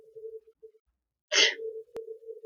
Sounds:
Sneeze